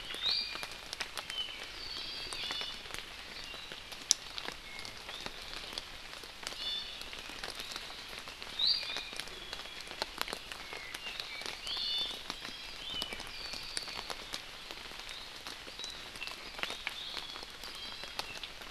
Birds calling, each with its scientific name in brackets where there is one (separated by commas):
Apapane (Himatione sanguinea), Iiwi (Drepanis coccinea)